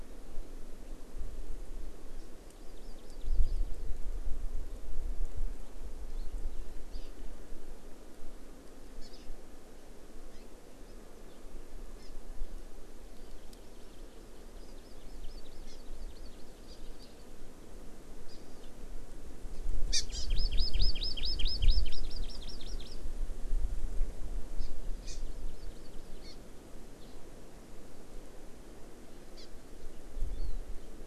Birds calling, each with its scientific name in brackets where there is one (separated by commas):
Hawaii Amakihi (Chlorodrepanis virens), Warbling White-eye (Zosterops japonicus)